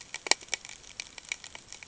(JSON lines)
{"label": "ambient", "recorder": "HydroMoth"}